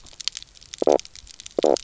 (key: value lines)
label: biophony, knock croak
recorder: SoundTrap 300